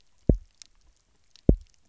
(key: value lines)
label: biophony, double pulse
recorder: SoundTrap 300